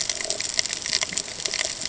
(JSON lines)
{"label": "ambient", "recorder": "HydroMoth"}